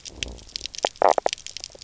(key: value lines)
label: biophony, knock croak
recorder: SoundTrap 300